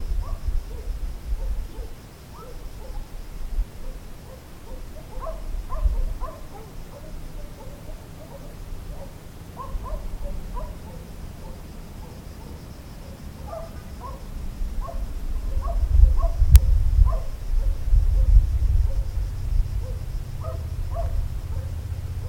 What type of animal is making noise?
dog